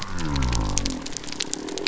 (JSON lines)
{"label": "biophony", "recorder": "SoundTrap 300"}